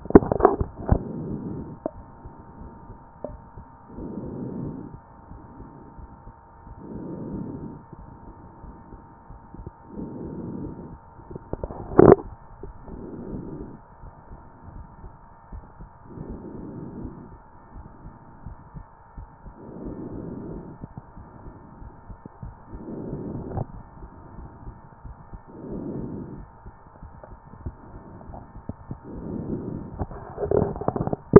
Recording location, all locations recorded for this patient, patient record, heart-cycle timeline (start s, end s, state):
pulmonary valve (PV)
pulmonary valve (PV)
#Age: nan
#Sex: Female
#Height: nan
#Weight: nan
#Pregnancy status: True
#Murmur: Absent
#Murmur locations: nan
#Most audible location: nan
#Systolic murmur timing: nan
#Systolic murmur shape: nan
#Systolic murmur grading: nan
#Systolic murmur pitch: nan
#Systolic murmur quality: nan
#Diastolic murmur timing: nan
#Diastolic murmur shape: nan
#Diastolic murmur grading: nan
#Diastolic murmur pitch: nan
#Diastolic murmur quality: nan
#Outcome: Normal
#Campaign: 2014 screening campaign
0.00	12.46	unannotated
12.46	12.64	diastole
12.64	12.72	S1
12.72	12.88	systole
12.88	12.98	S2
12.98	13.30	diastole
13.30	13.44	S1
13.44	13.60	systole
13.60	13.70	S2
13.70	14.04	diastole
14.04	14.14	S1
14.14	14.32	systole
14.32	14.40	S2
14.40	14.74	diastole
14.74	14.86	S1
14.86	15.02	systole
15.02	15.12	S2
15.12	15.52	diastole
15.52	15.64	S1
15.64	15.80	systole
15.80	15.88	S2
15.88	16.34	diastole
16.34	31.39	unannotated